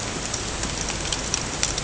{"label": "ambient", "recorder": "HydroMoth"}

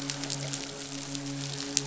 {"label": "biophony, midshipman", "recorder": "SoundTrap 500"}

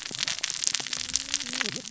{"label": "biophony, cascading saw", "recorder": "SoundTrap 600 or HydroMoth"}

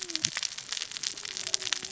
{"label": "biophony, cascading saw", "recorder": "SoundTrap 600 or HydroMoth"}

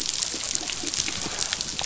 {"label": "biophony", "recorder": "SoundTrap 500"}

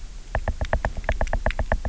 {"label": "biophony, knock", "recorder": "SoundTrap 300"}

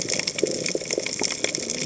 {"label": "biophony, cascading saw", "recorder": "HydroMoth"}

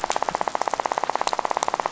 {"label": "biophony, rattle", "recorder": "SoundTrap 500"}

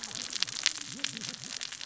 {"label": "biophony, cascading saw", "recorder": "SoundTrap 600 or HydroMoth"}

